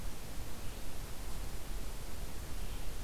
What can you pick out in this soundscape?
Red-eyed Vireo